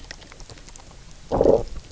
{"label": "biophony, low growl", "recorder": "SoundTrap 300"}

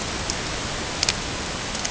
{"label": "ambient", "recorder": "HydroMoth"}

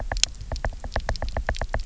{"label": "biophony, knock", "recorder": "SoundTrap 300"}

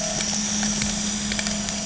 {"label": "anthrophony, boat engine", "recorder": "HydroMoth"}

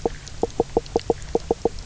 {"label": "biophony, knock croak", "recorder": "SoundTrap 300"}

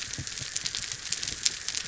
{"label": "biophony", "recorder": "SoundTrap 300"}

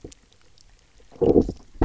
{"label": "biophony, low growl", "recorder": "SoundTrap 300"}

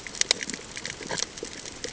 {"label": "ambient", "recorder": "HydroMoth"}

